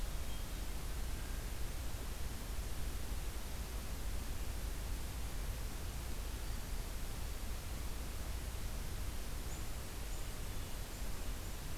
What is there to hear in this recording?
Black-throated Green Warbler